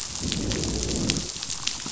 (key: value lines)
label: biophony, growl
recorder: SoundTrap 500